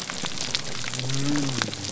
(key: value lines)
label: biophony
recorder: SoundTrap 300